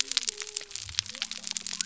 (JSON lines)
{"label": "biophony", "recorder": "SoundTrap 300"}